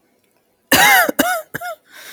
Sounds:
Cough